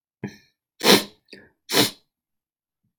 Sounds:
Sniff